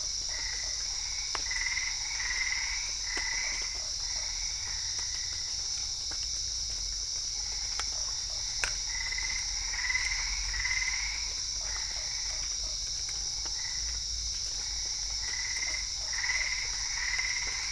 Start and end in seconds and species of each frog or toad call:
0.3	5.6	Boana albopunctata
3.4	4.3	Boana lundii
7.8	8.9	Boana lundii
8.9	11.0	Boana albopunctata
11.5	12.8	Boana lundii
15.1	17.7	Boana albopunctata
15.6	16.6	Boana lundii
Brazil, 8:30pm

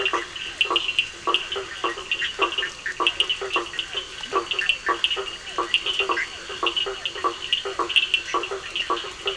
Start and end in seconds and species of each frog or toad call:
0.0	9.3	Boana faber
0.0	9.3	Elachistocleis bicolor
0.0	9.3	Scinax perereca
0.0	9.3	Sphaenorhynchus surdus
3.9	7.2	Physalaemus cuvieri
4.2	4.3	Leptodactylus latrans
Brazil, 9:00pm

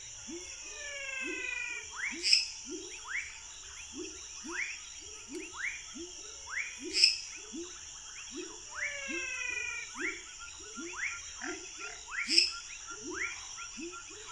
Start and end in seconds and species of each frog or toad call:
0.0	13.5	Leptodactylus fuscus
0.0	14.3	Leptodactylus labyrinthicus
0.6	2.1	Physalaemus albonotatus
2.1	2.6	Dendropsophus minutus
7.0	7.4	Dendropsophus minutus
8.6	10.3	Physalaemus albonotatus
11.4	12.1	Physalaemus nattereri
12.2	12.9	Dendropsophus minutus
Brazil, 8:30pm

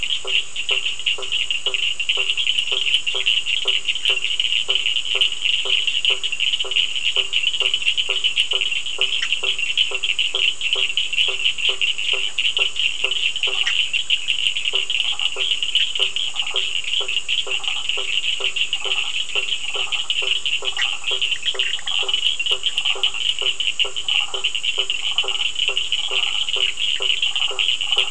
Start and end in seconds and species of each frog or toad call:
0.0	28.1	Boana faber
0.0	28.1	Sphaenorhynchus surdus
9.2	9.4	Boana bischoffi
13.6	13.8	Boana bischoffi
14.9	27.6	Boana prasina
20.7	22.0	Boana bischoffi
Brazil, 8:15pm

